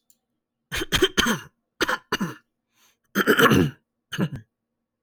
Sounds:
Throat clearing